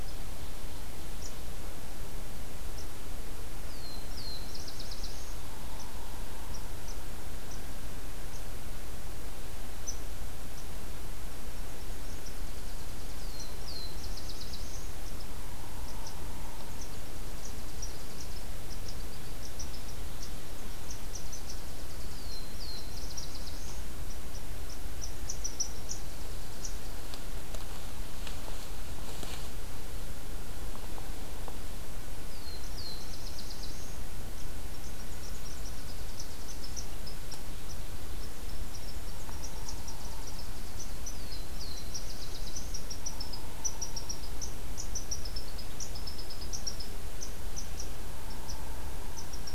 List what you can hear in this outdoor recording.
Black-throated Blue Warbler, Nashville Warbler, unidentified call